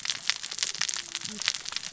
{"label": "biophony, cascading saw", "recorder": "SoundTrap 600 or HydroMoth"}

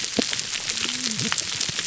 {"label": "biophony, whup", "recorder": "SoundTrap 300"}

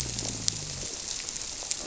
{"label": "biophony", "recorder": "SoundTrap 300"}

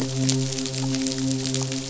{"label": "biophony, midshipman", "recorder": "SoundTrap 500"}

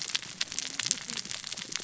{"label": "biophony, cascading saw", "recorder": "SoundTrap 600 or HydroMoth"}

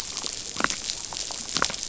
{"label": "biophony, damselfish", "recorder": "SoundTrap 500"}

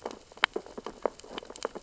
{"label": "biophony, sea urchins (Echinidae)", "recorder": "SoundTrap 600 or HydroMoth"}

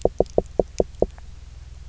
{"label": "biophony, knock", "recorder": "SoundTrap 300"}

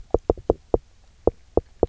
{"label": "biophony, knock", "recorder": "SoundTrap 300"}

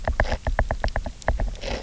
{"label": "biophony, knock", "recorder": "SoundTrap 300"}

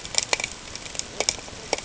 {"label": "ambient", "recorder": "HydroMoth"}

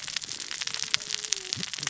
{"label": "biophony, cascading saw", "recorder": "SoundTrap 600 or HydroMoth"}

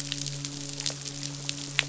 {"label": "biophony, midshipman", "recorder": "SoundTrap 500"}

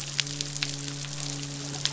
{"label": "biophony, midshipman", "recorder": "SoundTrap 500"}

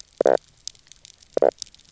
{"label": "biophony, knock croak", "recorder": "SoundTrap 300"}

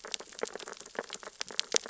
{"label": "biophony, sea urchins (Echinidae)", "recorder": "SoundTrap 600 or HydroMoth"}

